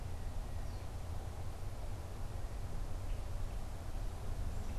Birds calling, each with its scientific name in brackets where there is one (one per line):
unidentified bird